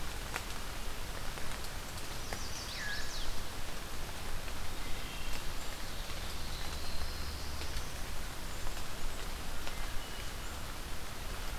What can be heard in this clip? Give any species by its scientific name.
Setophaga pensylvanica, Catharus fuscescens, Hylocichla mustelina, Setophaga caerulescens